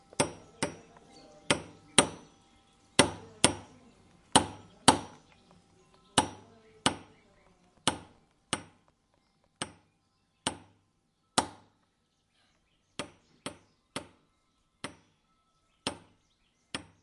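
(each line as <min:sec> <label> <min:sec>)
0:00.0 Someone knocks on a door with decreasing loudness. 0:17.0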